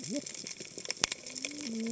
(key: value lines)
label: biophony, cascading saw
recorder: HydroMoth